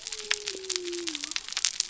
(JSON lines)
{"label": "biophony", "recorder": "SoundTrap 300"}